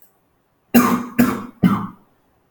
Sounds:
Cough